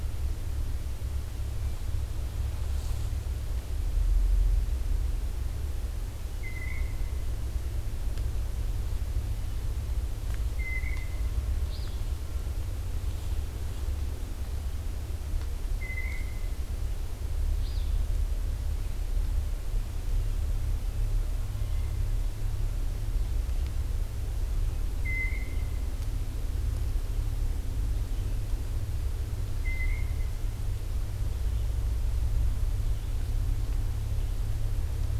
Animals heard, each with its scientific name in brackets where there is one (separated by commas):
Blue Jay (Cyanocitta cristata), Alder Flycatcher (Empidonax alnorum)